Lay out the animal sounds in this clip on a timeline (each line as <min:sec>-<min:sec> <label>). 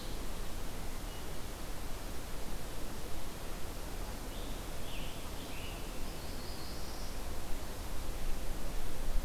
0:04.2-0:06.0 Scarlet Tanager (Piranga olivacea)
0:06.0-0:07.2 Black-throated Blue Warbler (Setophaga caerulescens)